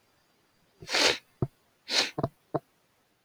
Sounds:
Sniff